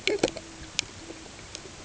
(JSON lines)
{"label": "ambient", "recorder": "HydroMoth"}